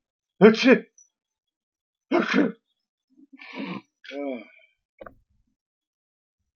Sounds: Sneeze